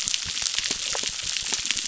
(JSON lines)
{"label": "biophony, crackle", "recorder": "SoundTrap 600"}